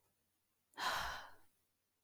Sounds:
Sigh